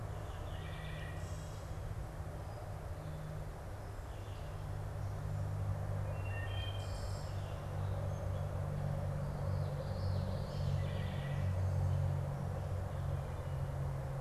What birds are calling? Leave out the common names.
Hylocichla mustelina, Geothlypis trichas